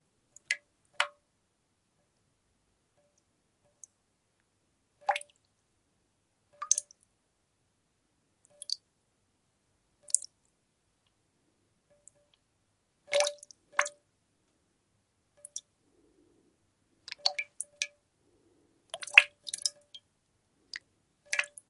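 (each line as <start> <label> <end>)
0.5 A drop falls. 1.2
3.8 A drop falls. 4.0
5.1 A drop falls. 5.3
6.6 A drop falls. 6.8
8.6 A drop falls. 8.8
10.1 A drop falls. 10.3
13.1 A few drops fall. 14.0
15.4 A drop falls. 15.7
17.0 A few drops fall. 18.0
18.9 A few drops fall. 19.9
20.6 A drop falls. 21.7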